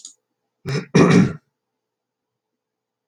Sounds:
Throat clearing